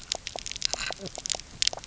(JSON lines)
{"label": "biophony, knock croak", "recorder": "SoundTrap 300"}